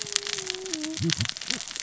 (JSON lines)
{"label": "biophony, cascading saw", "recorder": "SoundTrap 600 or HydroMoth"}